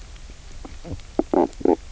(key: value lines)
label: biophony, knock croak
recorder: SoundTrap 300